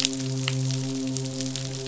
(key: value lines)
label: biophony, midshipman
recorder: SoundTrap 500